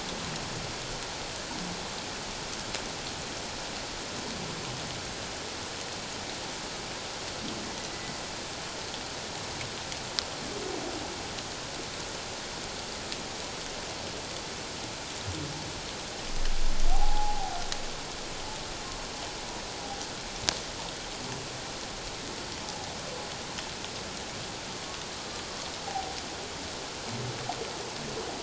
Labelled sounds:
16.9	17.6	humpback whale, 0.78 to 0.97 kHz
25.8	26.2	humpback whale, 0.78 to 0.84 kHz

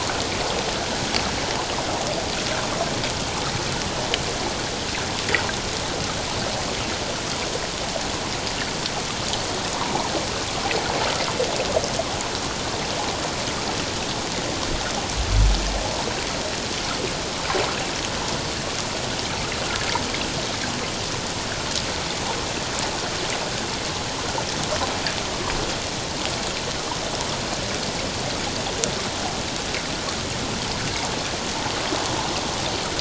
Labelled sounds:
9.8	10.1	water noise, 0.78 to 1.2 kHz

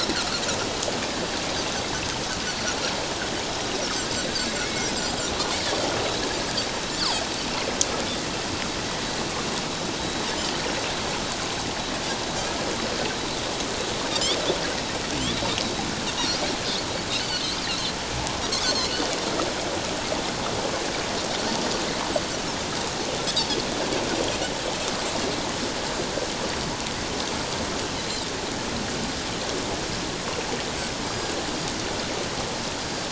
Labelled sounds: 0.1	0.4	Pacific white-sided dolphin, 1.2 to 1.7 kHz
4.6	5.0	Pacific white-sided dolphin, 2.0 to 2.3 kHz
7.0	7.2	Pacific white-sided dolphin, 4.0 to 5.2 kHz
17.2	17.9	Pacific white-sided dolphin, 2.8 to 4.6 kHz
18.5	19.0	Pacific white-sided dolphin, 2.8 to 6.5 kHz
31.1	31.3	Pacific white-sided dolphin, 4.8 to 5.0 kHz
32.8	33.1	Pacific white-sided dolphin, 4.7 to 5.0 kHz

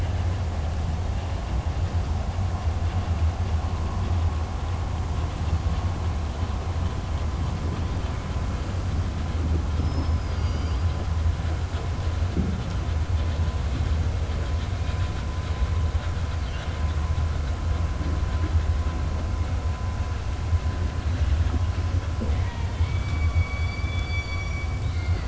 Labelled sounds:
9.7	10.9	killer whale, southern resident, 2.2 to 6.7 kHz
16.3	16.8	killer whale, southern resident, 1.4 to 4.7 kHz
23.1	25.2	killer whale, southern resident, 1.4 to 5.8 kHz

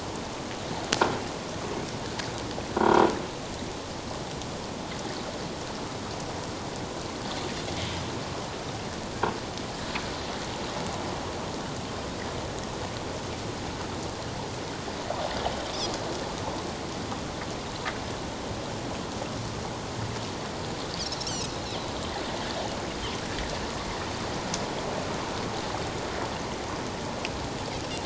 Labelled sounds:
2.8	3.0	croaking sound likely from a nearby submerged object, 1.3 to 1.5 kHz
21.3	21.5	Pacific white-sided dolphin, 2.5 to 3.2 kHz

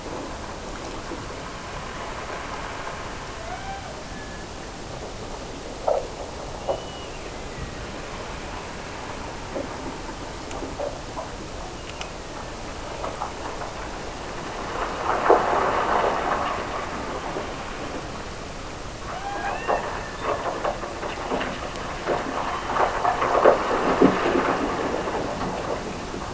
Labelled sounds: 3.4	4.5	killer whale, Bigg's (transient), Gulf of Alaska transient, 0.50 to 3.2 kHz
6.5	8.0	killer whale, Bigg's (transient), Gulf of Alaska transient, 1.7 to 3.0 kHz
11.7	12.7	killer whale, Bigg's (transient), Gulf of Alaska transient, 1.6 to 2.9 kHz
19.0	20.7	killer whale, Bigg's (transient), Gulf of Alaska transient, 0.48 to 3.3 kHz

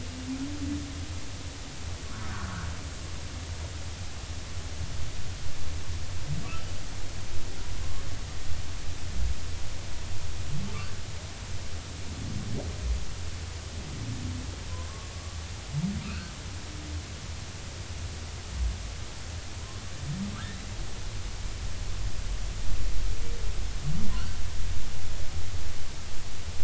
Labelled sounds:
2.3	2.7	humpback whale, 1.2 to 1.7 kHz
16.0	16.3	humpback whale, 1.2 to 1.6 kHz
20.3	20.6	humpback whale, 1.2 to 2.0 kHz

